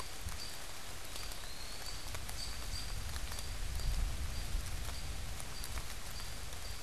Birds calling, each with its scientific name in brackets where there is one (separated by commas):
Eastern Wood-Pewee (Contopus virens), American Robin (Turdus migratorius)